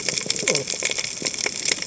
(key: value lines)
label: biophony, cascading saw
recorder: HydroMoth